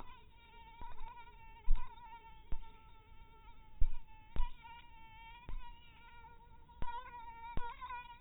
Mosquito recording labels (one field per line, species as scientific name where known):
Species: mosquito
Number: one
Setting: cup